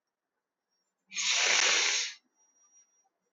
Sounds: Sniff